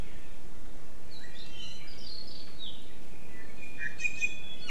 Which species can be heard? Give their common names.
Iiwi